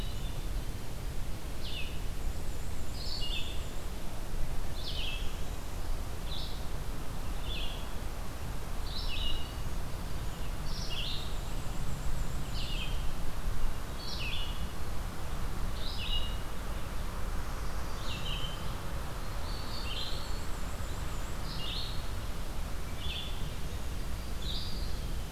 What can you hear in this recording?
Hermit Thrush, Red-eyed Vireo, Black-and-white Warbler, Northern Parula, Eastern Wood-Pewee